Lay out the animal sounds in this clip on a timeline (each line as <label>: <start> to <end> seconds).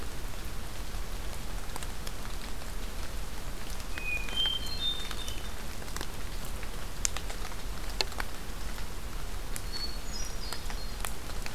Hermit Thrush (Catharus guttatus): 3.9 to 5.6 seconds
Hermit Thrush (Catharus guttatus): 9.5 to 11.0 seconds